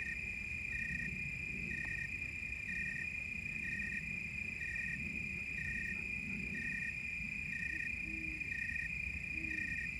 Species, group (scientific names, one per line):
Oecanthus rileyi
Orthoptera